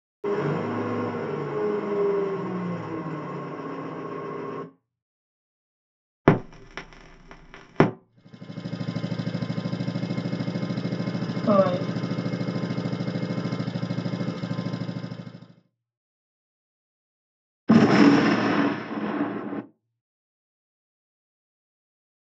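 First, at 0.24 seconds, there is an engine. After that, at 6.25 seconds, crackling is audible. Later, at 8.05 seconds, you can hear an engine fade in, and it fades out by 15.73 seconds. Meanwhile, at 11.46 seconds, someone says "five." Finally, at 17.68 seconds, gunfire can be heard.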